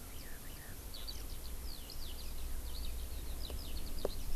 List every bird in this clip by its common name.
Eurasian Skylark